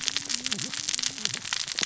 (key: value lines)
label: biophony, cascading saw
recorder: SoundTrap 600 or HydroMoth